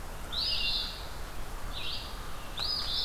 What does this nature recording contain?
American Crow, Red-eyed Vireo, Eastern Phoebe